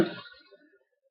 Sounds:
Cough